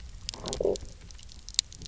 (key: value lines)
label: biophony, low growl
recorder: SoundTrap 300